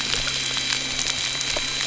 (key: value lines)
label: anthrophony, boat engine
recorder: SoundTrap 300